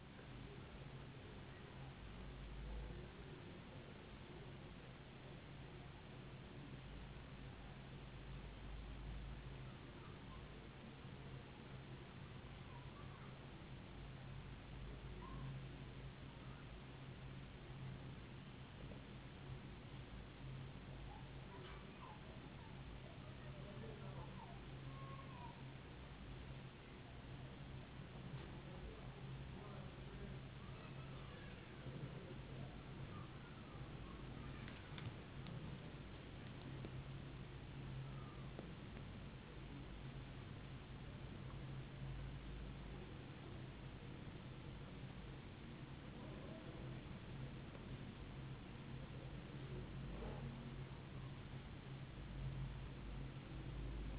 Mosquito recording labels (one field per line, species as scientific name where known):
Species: no mosquito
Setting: insect culture